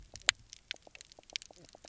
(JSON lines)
{"label": "biophony, knock croak", "recorder": "SoundTrap 300"}